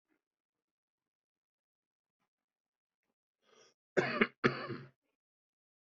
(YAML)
expert_labels:
- quality: good
  cough_type: dry
  dyspnea: false
  wheezing: false
  stridor: false
  choking: false
  congestion: false
  nothing: true
  diagnosis: healthy cough
  severity: pseudocough/healthy cough
age: 46
gender: male
respiratory_condition: false
fever_muscle_pain: false
status: healthy